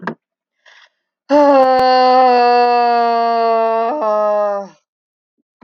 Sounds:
Sigh